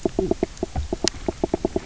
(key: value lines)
label: biophony, knock croak
recorder: SoundTrap 300